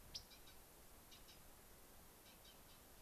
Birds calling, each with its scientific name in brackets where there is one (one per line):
Dark-eyed Junco (Junco hyemalis)